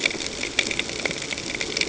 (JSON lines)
{"label": "ambient", "recorder": "HydroMoth"}